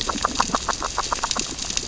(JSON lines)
{"label": "biophony, grazing", "recorder": "SoundTrap 600 or HydroMoth"}